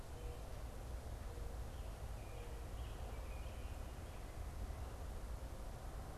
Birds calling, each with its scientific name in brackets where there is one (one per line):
American Robin (Turdus migratorius)
Mourning Dove (Zenaida macroura)